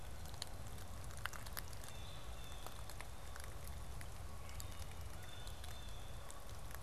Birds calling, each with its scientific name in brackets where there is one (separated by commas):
Canada Goose (Branta canadensis), Blue Jay (Cyanocitta cristata), Wood Thrush (Hylocichla mustelina)